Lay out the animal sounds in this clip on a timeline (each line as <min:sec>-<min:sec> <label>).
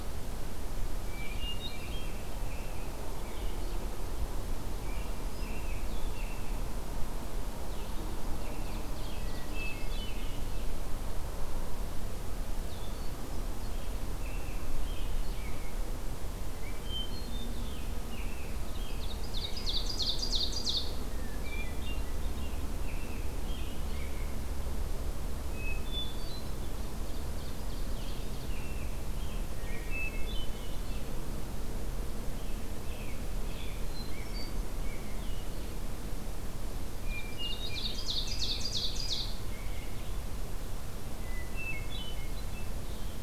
0:01.0-0:02.1 Hermit Thrush (Catharus guttatus)
0:01.0-0:03.5 American Robin (Turdus migratorius)
0:03.2-0:06.3 Blue-headed Vireo (Vireo solitarius)
0:04.3-0:06.6 American Robin (Turdus migratorius)
0:07.4-0:43.2 Blue-headed Vireo (Vireo solitarius)
0:08.1-0:10.1 Ovenbird (Seiurus aurocapilla)
0:08.3-0:10.5 American Robin (Turdus migratorius)
0:08.9-0:10.4 Hermit Thrush (Catharus guttatus)
0:12.9-0:13.7 Hermit Thrush (Catharus guttatus)
0:13.7-0:15.9 American Robin (Turdus migratorius)
0:16.7-0:17.6 Hermit Thrush (Catharus guttatus)
0:18.1-0:19.8 American Robin (Turdus migratorius)
0:18.7-0:20.9 Ovenbird (Seiurus aurocapilla)
0:21.1-0:22.2 Hermit Thrush (Catharus guttatus)
0:22.3-0:24.5 American Robin (Turdus migratorius)
0:25.5-0:26.7 Hermit Thrush (Catharus guttatus)
0:26.8-0:28.5 Ovenbird (Seiurus aurocapilla)
0:27.8-0:29.6 American Robin (Turdus migratorius)
0:29.5-0:30.9 Hermit Thrush (Catharus guttatus)
0:32.3-0:35.2 American Robin (Turdus migratorius)
0:33.8-0:34.7 Hermit Thrush (Catharus guttatus)
0:36.9-0:38.2 Hermit Thrush (Catharus guttatus)
0:37.0-0:39.4 Ovenbird (Seiurus aurocapilla)
0:37.6-0:40.0 American Robin (Turdus migratorius)
0:41.2-0:42.8 Hermit Thrush (Catharus guttatus)